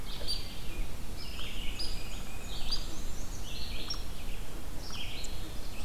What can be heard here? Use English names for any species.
Red-eyed Vireo, Hairy Woodpecker, Tufted Titmouse, Black-and-white Warbler